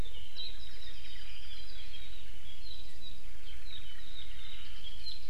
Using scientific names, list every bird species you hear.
Himatione sanguinea, Zosterops japonicus